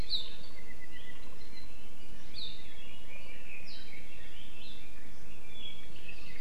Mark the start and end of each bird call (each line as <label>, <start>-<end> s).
Apapane (Himatione sanguinea), 0.5-1.2 s
Red-billed Leiothrix (Leiothrix lutea), 2.7-5.1 s
Apapane (Himatione sanguinea), 5.4-6.0 s